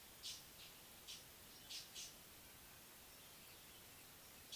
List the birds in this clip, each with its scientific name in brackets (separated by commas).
Mocking Cliff-Chat (Thamnolaea cinnamomeiventris)